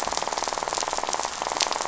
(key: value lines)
label: biophony, rattle
recorder: SoundTrap 500